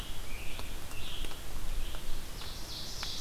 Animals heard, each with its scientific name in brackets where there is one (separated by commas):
Ovenbird (Seiurus aurocapilla), Red-eyed Vireo (Vireo olivaceus), Scarlet Tanager (Piranga olivacea)